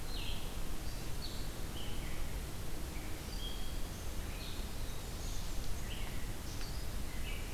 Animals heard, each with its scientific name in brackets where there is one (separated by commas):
Red-eyed Vireo (Vireo olivaceus), Blackburnian Warbler (Setophaga fusca)